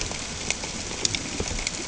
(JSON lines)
{"label": "ambient", "recorder": "HydroMoth"}